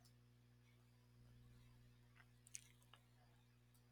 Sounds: Throat clearing